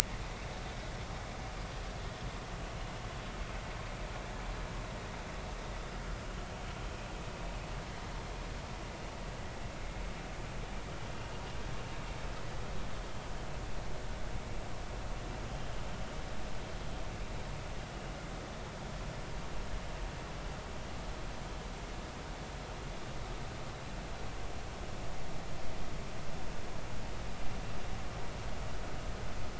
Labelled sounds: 15.5	15.8	vessel noise, 3.1 to 3.3 kHz

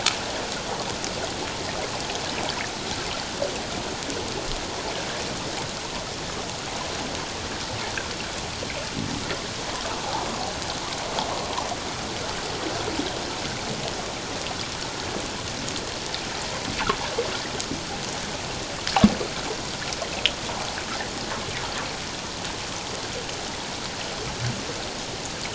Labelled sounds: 10.0	10.3	water noise, 0.78 to 1.0 kHz

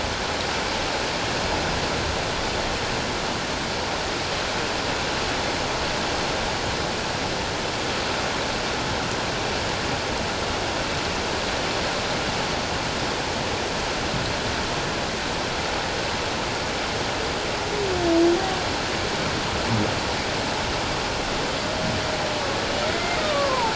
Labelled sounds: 22.9	23.7	humpback whale, 0.84 to 2.2 kHz

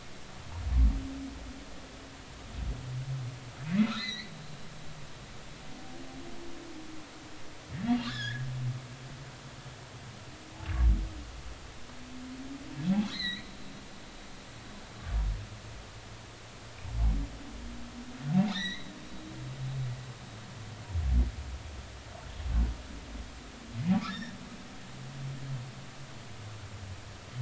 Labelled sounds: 3.7	4.3	humpback whale, 1.7 to 4.3 kHz
8.0	8.4	humpback whale, 1.4 to 5.3 kHz
13.1	13.5	humpback whale, 1.7 to 7.8 kHz
18.5	18.9	humpback whale, 1.6 to 4.2 kHz
23.9	24.4	humpback whale, 1.1 to 5.7 kHz

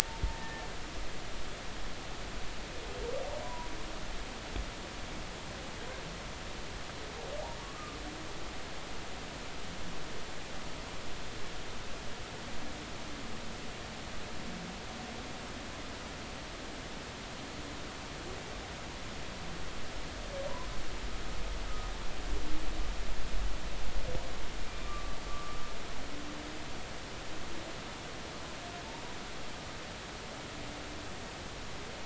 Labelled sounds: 0.3	0.6	humpback whale, 1.7 to 1.9 kHz
3.4	3.7	humpback whale, 0.90 to 1.1 kHz
7.6	8.0	humpback whale, 1.0 to 1.3 kHz
24.8	25.7	humpback whale, 1.1 to 1.3 kHz

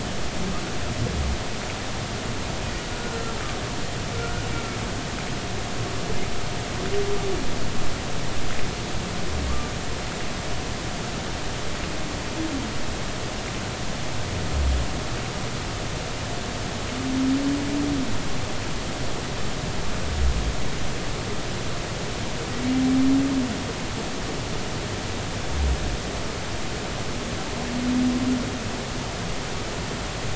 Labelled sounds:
2.9	4.4	humpback whale, 1.3 to 1.5 kHz

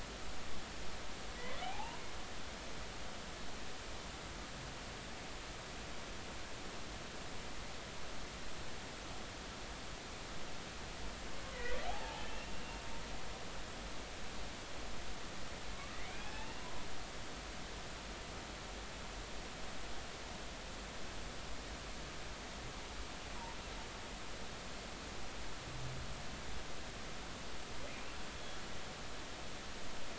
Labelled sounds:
1.3	2.0	humpback whale, 0.80 to 2.1 kHz
11.5	12.5	humpback whale, 0.80 to 2.8 kHz
15.7	16.8	humpback whale, 0.80 to 2.9 kHz
28.3	28.6	humpback whale, 3.3 to 3.4 kHz

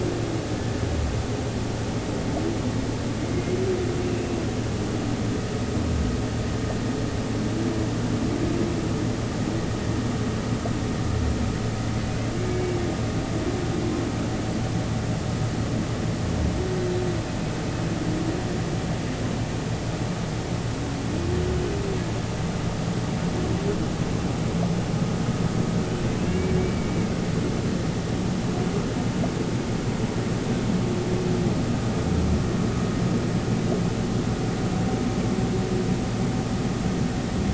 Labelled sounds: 3.3	4.4	humpback whale, 2.0 to 2.7 kHz
12.4	12.7	humpback whale, 2.2 to 2.3 kHz
26.3	27.1	humpback whale, 2.1 to 2.4 kHz

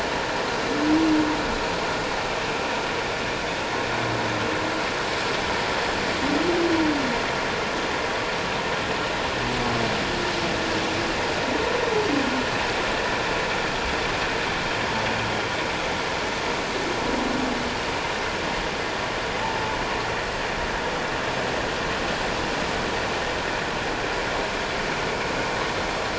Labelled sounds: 19.4	19.7	humpback whale, 0.84 to 1.0 kHz

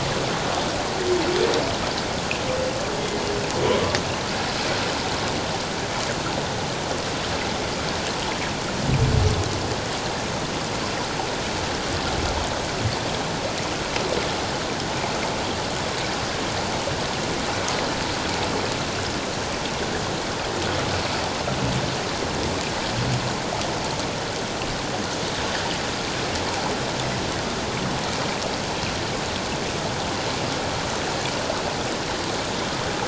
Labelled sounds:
3.6	4.0	humpback whale, 0.97 to 1.2 kHz

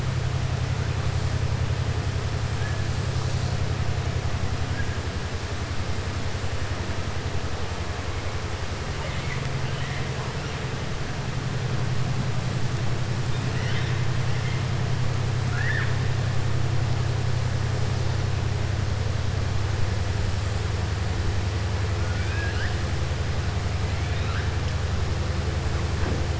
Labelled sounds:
8.9	10.1	killer whale, southern resident, 0.56 to 4.0 kHz
15.4	15.9	killer whale, southern resident, 1.1 to 3.6 kHz
22.0	22.8	killer whale, southern resident, 1.4 to 5.1 kHz

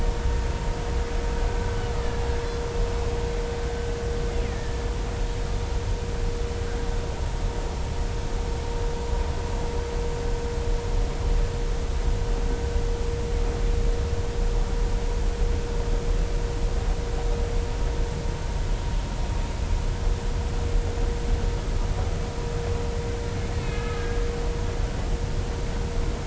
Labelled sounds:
4.4	4.8	killer whale, Bigg's (transient), 1.7 to 2.2 kHz
23.6	24.0	killer whale, Bigg's (transient), 1.2 to 2.7 kHz

